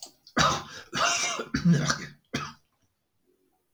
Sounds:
Throat clearing